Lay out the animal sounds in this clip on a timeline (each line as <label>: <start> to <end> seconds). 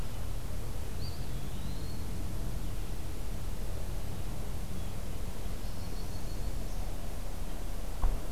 Eastern Wood-Pewee (Contopus virens): 0.9 to 2.1 seconds
Yellow-rumped Warbler (Setophaga coronata): 5.4 to 6.5 seconds
Northern Parula (Setophaga americana): 5.8 to 6.9 seconds